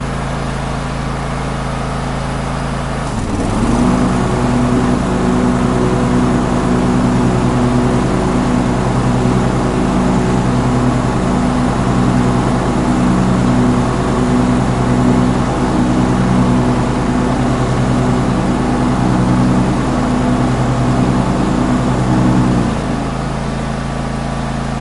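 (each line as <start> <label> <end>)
0.0 An engine is running. 24.8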